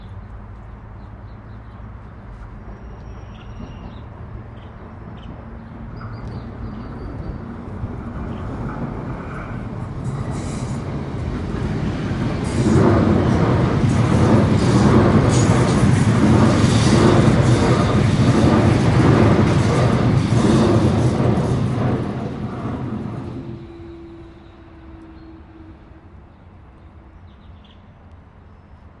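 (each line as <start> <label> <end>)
0.0 Small birds chatter softly in the background. 10.1
10.1 A sharp metallic sound occurs as a train wheel contacts the rail. 22.3
10.7 A whooshing sound of train wagons passing by rapidly. 29.0
27.3 Small birds chatter softly in the background. 29.0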